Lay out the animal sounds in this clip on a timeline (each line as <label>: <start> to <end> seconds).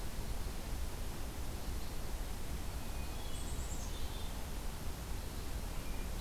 Hermit Thrush (Catharus guttatus): 2.9 to 4.5 seconds
Black-capped Chickadee (Poecile atricapillus): 3.2 to 4.5 seconds